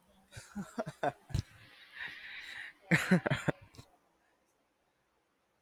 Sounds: Laughter